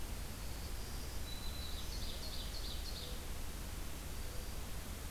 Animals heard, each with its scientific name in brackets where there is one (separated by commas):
Ovenbird (Seiurus aurocapilla), Black-throated Green Warbler (Setophaga virens)